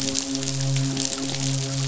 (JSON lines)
{"label": "biophony, midshipman", "recorder": "SoundTrap 500"}